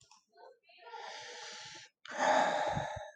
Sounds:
Sigh